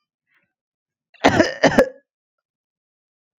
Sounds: Cough